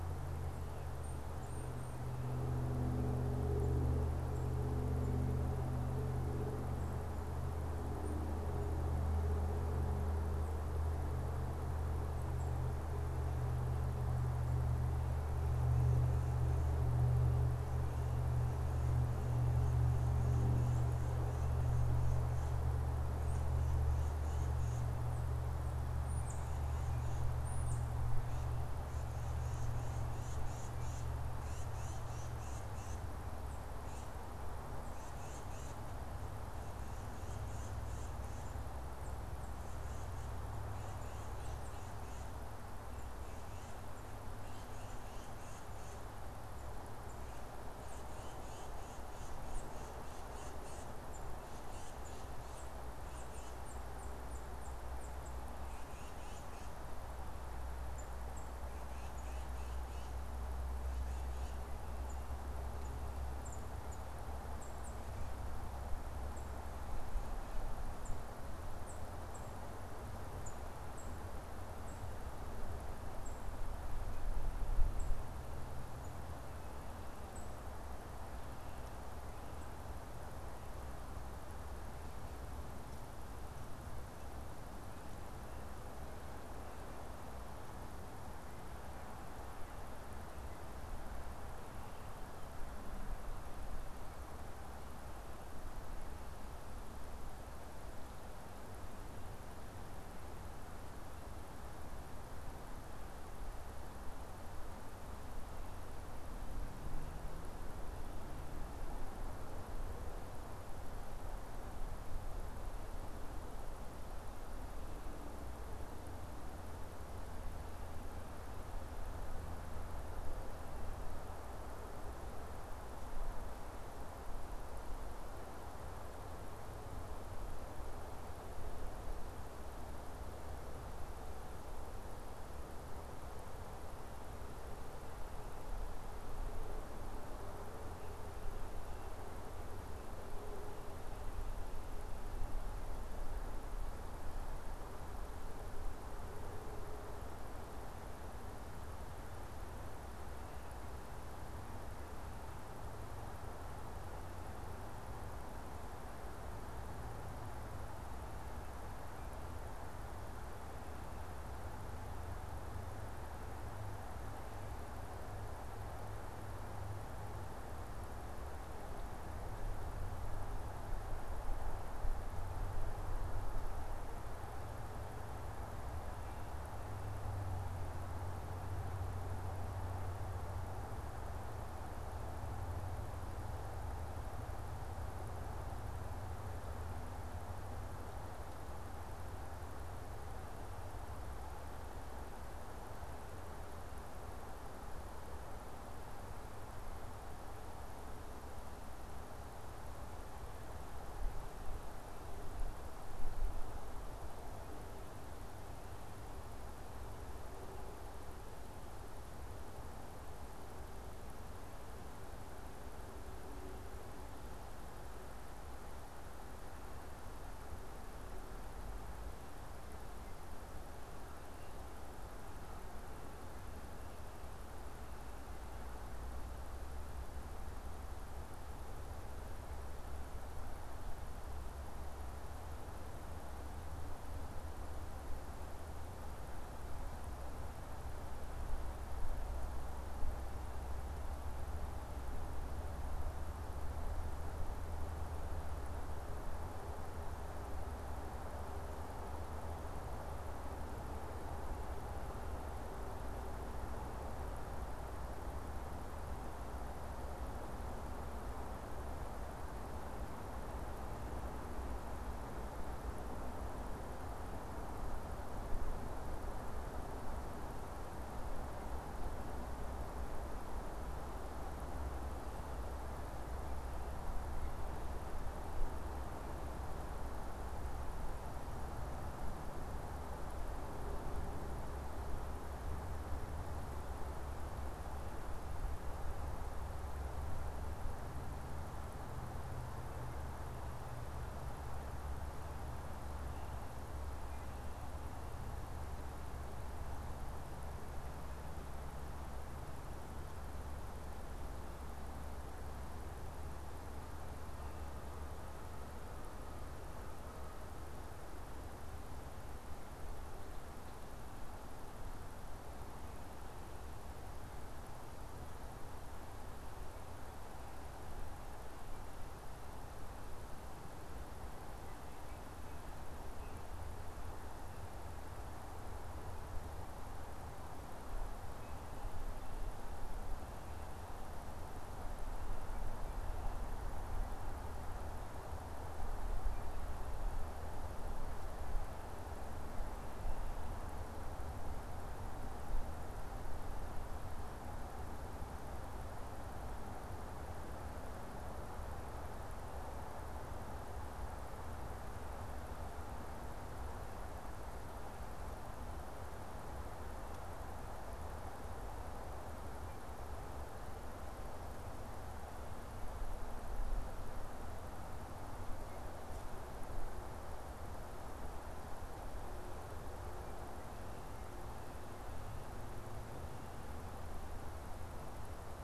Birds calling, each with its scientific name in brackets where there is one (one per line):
Tufted Titmouse (Baeolophus bicolor)